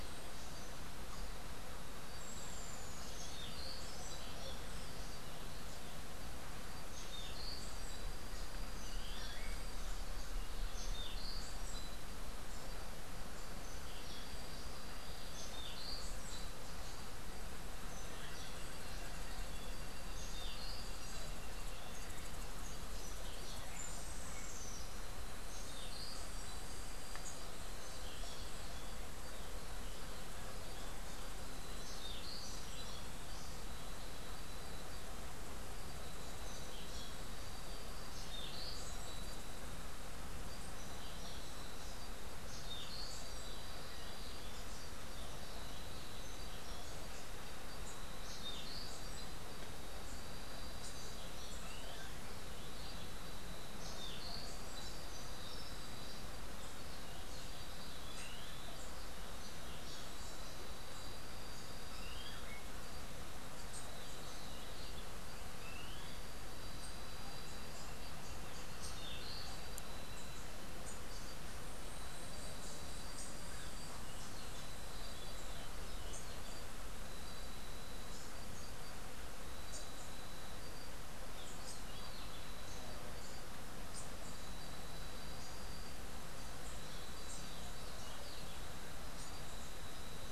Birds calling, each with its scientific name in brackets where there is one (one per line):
Rufous-tailed Hummingbird (Amazilia tzacatl)
Clay-colored Thrush (Turdus grayi)
Orange-billed Nightingale-Thrush (Catharus aurantiirostris)